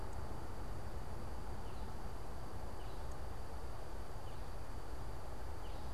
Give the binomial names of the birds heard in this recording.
unidentified bird